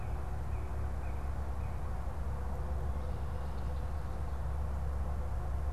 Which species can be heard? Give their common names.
Northern Cardinal